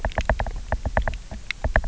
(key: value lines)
label: biophony, knock
recorder: SoundTrap 300